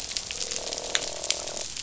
{"label": "biophony, croak", "recorder": "SoundTrap 500"}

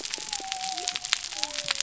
{"label": "biophony", "recorder": "SoundTrap 300"}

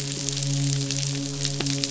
{"label": "biophony, midshipman", "recorder": "SoundTrap 500"}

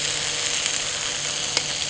{"label": "anthrophony, boat engine", "recorder": "HydroMoth"}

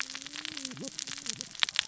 {"label": "biophony, cascading saw", "recorder": "SoundTrap 600 or HydroMoth"}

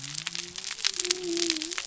{"label": "biophony", "recorder": "SoundTrap 300"}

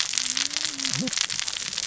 {"label": "biophony, cascading saw", "recorder": "SoundTrap 600 or HydroMoth"}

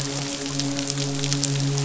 {"label": "biophony, midshipman", "recorder": "SoundTrap 500"}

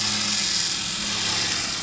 {"label": "anthrophony, boat engine", "recorder": "SoundTrap 500"}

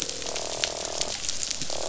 {"label": "biophony, croak", "recorder": "SoundTrap 500"}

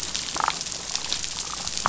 {"label": "biophony, damselfish", "recorder": "SoundTrap 500"}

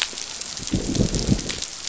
{"label": "biophony, growl", "recorder": "SoundTrap 500"}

